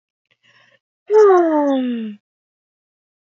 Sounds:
Sigh